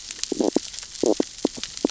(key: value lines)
label: biophony, stridulation
recorder: SoundTrap 600 or HydroMoth